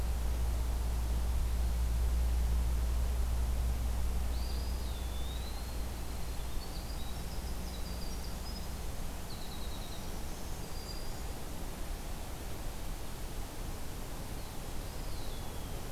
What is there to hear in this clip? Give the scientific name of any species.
Contopus virens, Troglodytes hiemalis, Setophaga virens